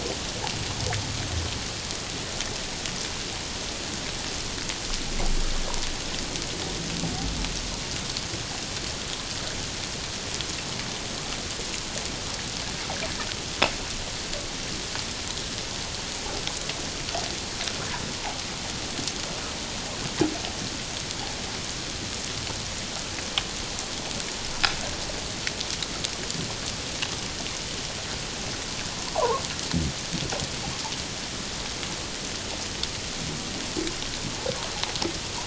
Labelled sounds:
29.1	29.4	fish, 0.78 to 1.2 kHz

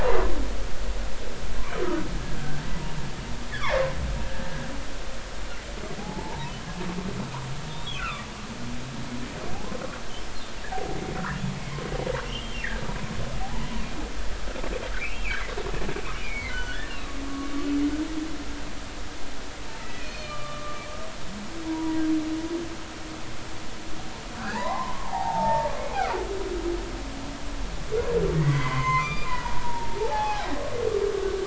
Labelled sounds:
3.6	3.9	humpback whale, 0.80 to 2.4 kHz
6.0	6.5	humpback whale, 0.80 to 1.0 kHz
7.7	8.3	humpback whale, 1.1 to 3.8 kHz
10.7	11.0	humpback whale, 0.80 to 0.86 kHz
12.2	12.6	humpback whale, 2.7 to 3.3 kHz
13.4	13.7	humpback whale, 0.80 to 1.0 kHz
15.1	16.9	humpback whale, 1.4 to 3.1 kHz
17.3	17.5	humpback whale, 1.1 to 1.2 kHz
19.8	20.8	humpback whale, 1.1 to 4.4 kHz
21.6	22.0	humpback whale, 0.90 to 1.0 kHz
24.4	25.7	humpback whale, 0.80 to 2.1 kHz
28.3	30.5	humpback whale, 0.80 to 4.9 kHz

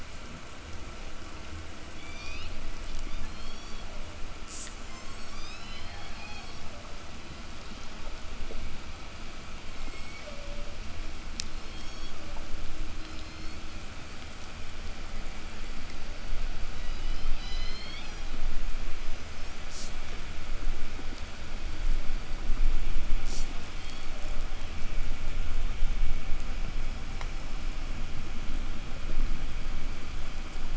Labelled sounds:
1.8	2.7	killer whale, southern resident, 1.6 to 7.9 kHz
3.0	4.0	killer whale, southern resident, 2.3 to 8.0 kHz
4.3	6.6	killer whale, southern resident, 1.6 to 8.0 kHz
9.5	10.5	killer whale, southern resident, 1.5 to 8.0 kHz
11.4	12.3	killer whale, southern resident, 2.3 to 8.0 kHz
12.8	13.8	killer whale, southern resident, call S01, 1.6 to 8.0 kHz
16.7	17.4	killer whale, southern resident, 1.4 to 7.8 kHz
17.4	18.6	killer whale, southern resident, call S01, 1.6 to 8.0 kHz
18.8	19.7	killer whale, southern resident, 3.8 to 8.0 kHz
23.6	24.3	killer whale, southern resident, 2.7 to 6.1 kHz
30.5	30.7	killer whale, 6.2 to 8.0 kHz

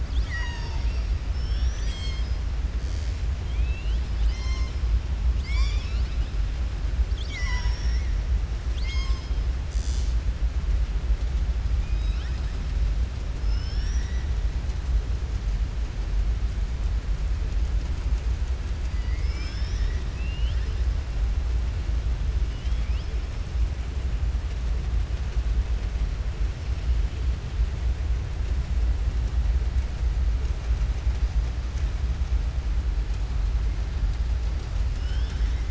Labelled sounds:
0.0	1.1	killer whale, southern resident, 0.89 to 6.8 kHz
3.4	4.0	killer whale, southern resident, 2.3 to 4.1 kHz
11.7	12.5	killer whale, southern resident, 1.3 to 5.6 kHz
20.0	20.8	killer whale, southern resident, 1.8 to 5.4 kHz

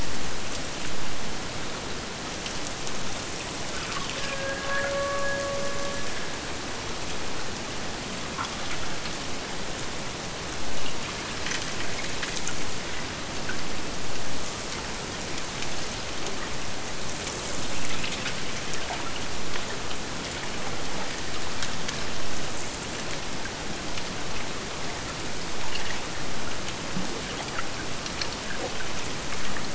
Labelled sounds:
3.9	6.8	killer whale, Bigg's (transient), AT1 transient, 0.44 to 2.9 kHz

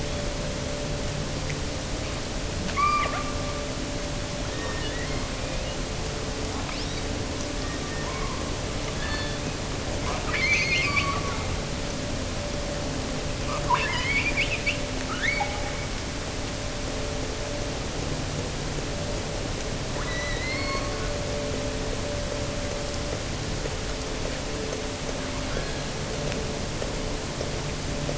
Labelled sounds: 2.6	3.7	killer whale, offshore, 0.80 to 4.9 kHz
4.5	5.9	killer whale, offshore, 0.93 to 6.0 kHz
6.6	7.2	killer whale, offshore, 2.0 to 6.0 kHz
7.5	8.5	killer whale, offshore, 0.93 to 2.4 kHz
8.9	9.6	killer whale, offshore, 1.5 to 4.6 kHz
10.1	11.3	killer whale, offshore, 1.1 to 6.6 kHz
13.4	16.0	killer whale, offshore, 0.66 to 7.2 kHz
19.9	21.1	killer whale, offshore, 0.80 to 4.6 kHz
25.4	26.1	killer whale, offshore, 1.2 to 4.4 kHz

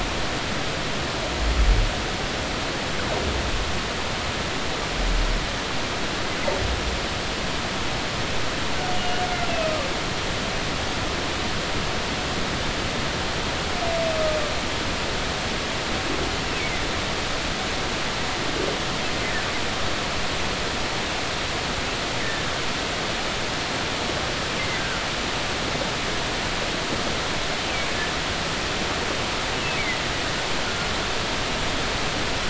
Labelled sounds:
9.0	9.8	humpback whale, 2.5 to 2.9 kHz
22.2	22.5	humpback whale, 1.6 to 1.9 kHz
24.7	25.0	humpback whale, 1.3 to 1.6 kHz

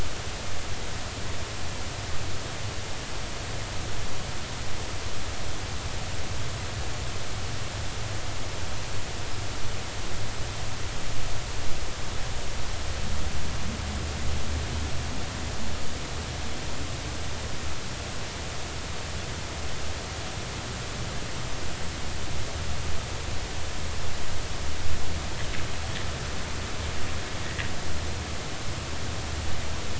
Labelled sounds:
27.4	27.7	sperm whale, 1.8 to 2.1 kHz

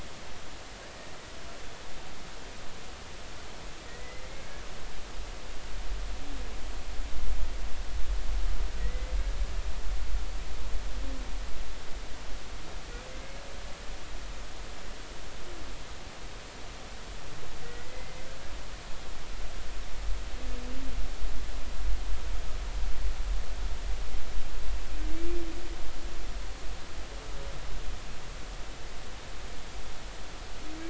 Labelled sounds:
3.9	4.6	humpback whale, 1.8 to 2.2 kHz
8.8	9.1	humpback whale, 1.9 to 2.1 kHz
17.6	18.3	humpback whale, 1.9 to 2.2 kHz

